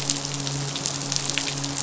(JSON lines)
{"label": "biophony, midshipman", "recorder": "SoundTrap 500"}